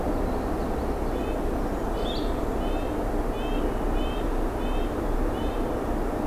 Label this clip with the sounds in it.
Common Yellowthroat, Red-breasted Nuthatch, Blue-headed Vireo